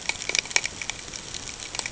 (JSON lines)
{"label": "ambient", "recorder": "HydroMoth"}